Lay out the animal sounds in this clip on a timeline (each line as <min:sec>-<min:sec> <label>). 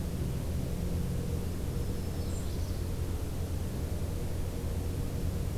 0:01.6-0:02.8 Black-throated Green Warbler (Setophaga virens)
0:02.2-0:02.8 Magnolia Warbler (Setophaga magnolia)